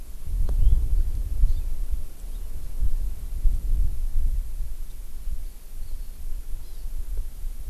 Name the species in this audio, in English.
House Finch, Hawaii Amakihi